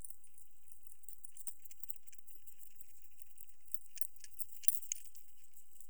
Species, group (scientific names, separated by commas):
Conocephalus fuscus, Orthoptera